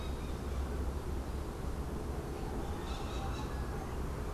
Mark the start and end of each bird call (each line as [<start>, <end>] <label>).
[2.77, 3.58] Crimson-fronted Parakeet (Psittacara finschi)